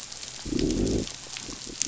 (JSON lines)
{"label": "biophony, growl", "recorder": "SoundTrap 500"}